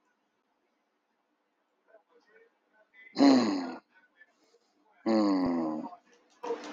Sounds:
Sigh